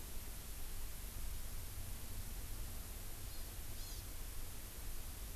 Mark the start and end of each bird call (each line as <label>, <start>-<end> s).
Hawaii Amakihi (Chlorodrepanis virens), 3.3-3.5 s
Hawaii Amakihi (Chlorodrepanis virens), 3.8-4.1 s